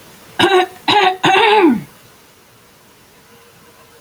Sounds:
Throat clearing